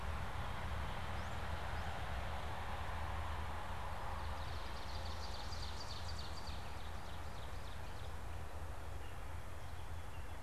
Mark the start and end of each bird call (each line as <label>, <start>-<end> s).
unidentified bird, 0.9-2.2 s
Ovenbird (Seiurus aurocapilla), 4.0-8.2 s